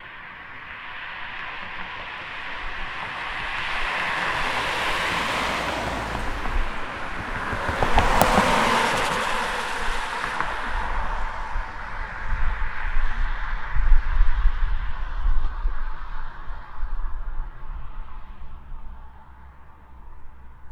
What type of vehicle is heard passing by?
car